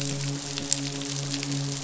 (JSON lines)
{"label": "biophony, midshipman", "recorder": "SoundTrap 500"}